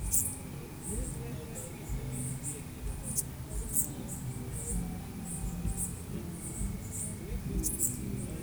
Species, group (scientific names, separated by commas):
Ephippiger ephippiger, Orthoptera